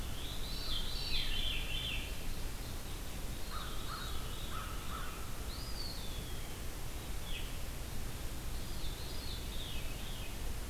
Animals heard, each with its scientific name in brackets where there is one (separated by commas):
Eastern Wood-Pewee (Contopus virens), American Crow (Corvus brachyrhynchos), Veery (Catharus fuscescens)